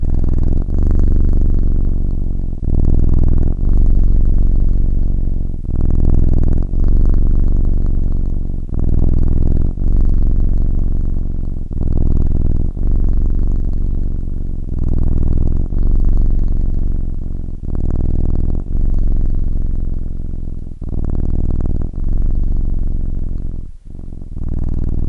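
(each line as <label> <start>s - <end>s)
A cat is purring with volume steadily increasing and decreasing. 0.0s - 25.1s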